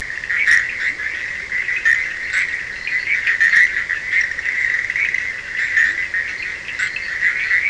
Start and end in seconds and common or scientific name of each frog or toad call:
0.0	7.6	Bischoff's tree frog
0.0	7.6	Cochran's lime tree frog
2.7	3.1	fine-lined tree frog
3.4	3.7	fine-lined tree frog
6.1	7.6	fine-lined tree frog